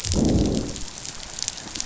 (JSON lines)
{"label": "biophony, growl", "recorder": "SoundTrap 500"}